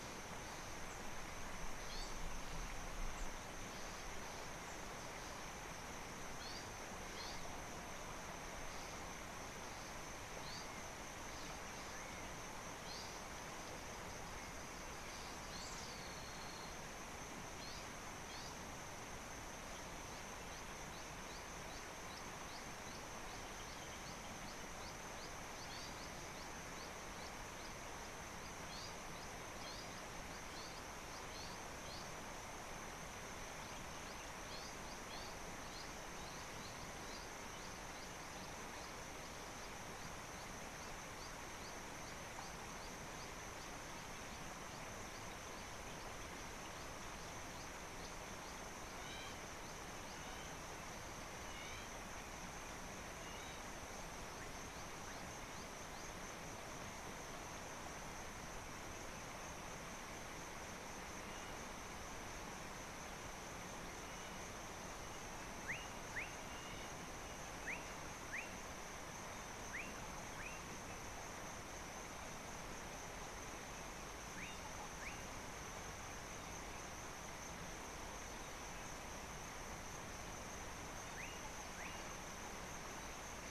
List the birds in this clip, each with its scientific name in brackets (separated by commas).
Gray-backed Camaroptera (Camaroptera brevicaudata), Slate-colored Boubou (Laniarius funebris), Hamerkop (Scopus umbretta)